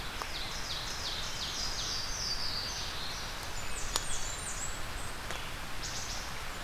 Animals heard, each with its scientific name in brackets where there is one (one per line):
Wood Thrush (Hylocichla mustelina)
Blackburnian Warbler (Setophaga fusca)
Ovenbird (Seiurus aurocapilla)
Louisiana Waterthrush (Parkesia motacilla)